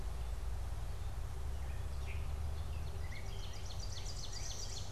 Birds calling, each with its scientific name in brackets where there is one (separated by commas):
Northern Cardinal (Cardinalis cardinalis), Ovenbird (Seiurus aurocapilla), Gray Catbird (Dumetella carolinensis)